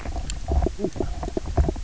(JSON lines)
{"label": "biophony, knock croak", "recorder": "SoundTrap 300"}